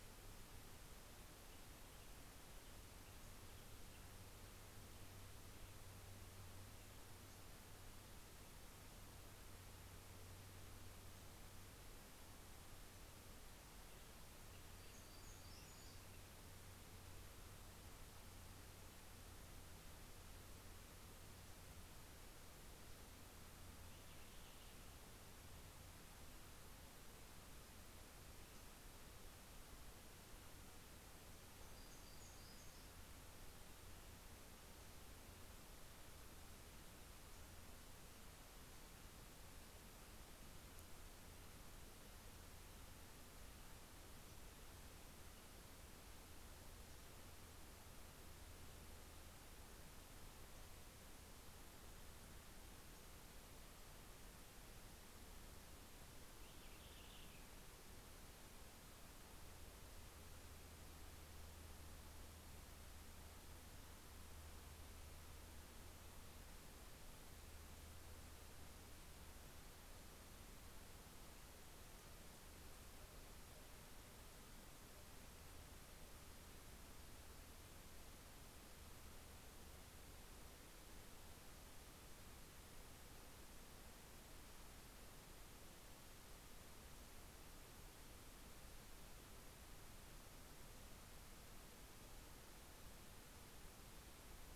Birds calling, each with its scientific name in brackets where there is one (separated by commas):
Hermit Warbler (Setophaga occidentalis), Purple Finch (Haemorhous purpureus)